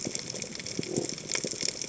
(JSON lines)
{"label": "biophony", "recorder": "HydroMoth"}